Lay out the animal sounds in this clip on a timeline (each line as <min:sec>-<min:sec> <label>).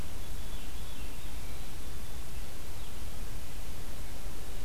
0:00.2-0:01.6 Veery (Catharus fuscescens)